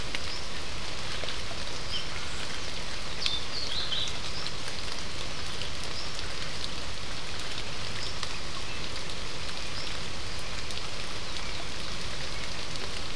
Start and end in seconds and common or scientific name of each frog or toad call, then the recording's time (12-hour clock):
2.1	2.5	Scinax perereca
6:15pm